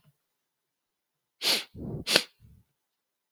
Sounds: Sniff